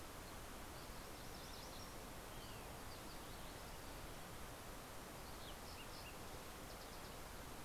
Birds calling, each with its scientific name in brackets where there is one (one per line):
MacGillivray's Warbler (Geothlypis tolmiei)
Olive-sided Flycatcher (Contopus cooperi)
Fox Sparrow (Passerella iliaca)